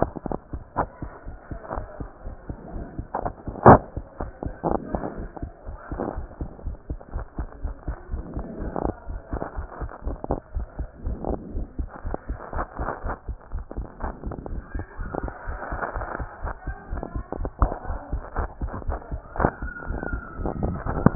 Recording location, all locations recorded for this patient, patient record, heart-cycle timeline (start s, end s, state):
pulmonary valve (PV)
aortic valve (AV)+pulmonary valve (PV)+tricuspid valve (TV)+mitral valve (MV)
#Age: Adolescent
#Sex: Male
#Height: 151.0 cm
#Weight: 38.3 kg
#Pregnancy status: False
#Murmur: Absent
#Murmur locations: nan
#Most audible location: nan
#Systolic murmur timing: nan
#Systolic murmur shape: nan
#Systolic murmur grading: nan
#Systolic murmur pitch: nan
#Systolic murmur quality: nan
#Diastolic murmur timing: nan
#Diastolic murmur shape: nan
#Diastolic murmur grading: nan
#Diastolic murmur pitch: nan
#Diastolic murmur quality: nan
#Outcome: Normal
#Campaign: 2015 screening campaign
0.00	4.04	unannotated
4.04	4.20	diastole
4.20	4.30	S1
4.30	4.42	systole
4.42	4.52	S2
4.52	4.66	diastole
4.66	4.82	S1
4.82	4.92	systole
4.92	5.04	S2
5.04	5.18	diastole
5.18	5.30	S1
5.30	5.40	systole
5.40	5.50	S2
5.50	5.68	diastole
5.68	5.78	S1
5.78	5.90	systole
5.90	6.00	S2
6.00	6.14	diastole
6.14	6.28	S1
6.28	6.40	systole
6.40	6.48	S2
6.48	6.64	diastole
6.64	6.76	S1
6.76	6.88	systole
6.88	6.98	S2
6.98	7.12	diastole
7.12	7.26	S1
7.26	7.38	systole
7.38	7.50	S2
7.50	7.62	diastole
7.62	7.74	S1
7.74	7.86	systole
7.86	7.96	S2
7.96	8.10	diastole
8.10	8.24	S1
8.24	8.34	systole
8.34	8.48	S2
8.48	8.62	diastole
8.62	8.74	S1
8.74	8.82	systole
8.82	8.96	S2
8.96	9.08	diastole
9.08	9.20	S1
9.20	9.32	systole
9.32	9.42	S2
9.42	9.56	diastole
9.56	9.68	S1
9.68	9.80	systole
9.80	9.90	S2
9.90	10.04	diastole
10.04	10.18	S1
10.18	10.28	systole
10.28	10.42	S2
10.42	10.54	diastole
10.54	10.66	S1
10.66	10.78	systole
10.78	10.88	S2
10.88	11.04	diastole
11.04	11.20	S1
11.20	11.28	systole
11.28	11.40	S2
11.40	11.54	diastole
11.54	11.66	S1
11.66	11.78	systole
11.78	11.90	S2
11.90	12.06	diastole
12.06	12.18	S1
12.18	12.28	systole
12.28	12.38	S2
12.38	12.54	diastole
12.54	12.66	S1
12.66	12.78	systole
12.78	12.88	S2
12.88	13.04	diastole
13.04	13.16	S1
13.16	13.28	systole
13.28	13.38	S2
13.38	13.52	diastole
13.52	13.66	S1
13.66	13.76	systole
13.76	13.86	S2
13.86	14.02	diastole
14.02	14.14	S1
14.14	14.24	systole
14.24	14.36	S2
14.36	14.50	diastole
14.50	14.66	S1
14.66	14.76	systole
14.76	14.86	S2
14.86	14.95	diastole
14.95	21.15	unannotated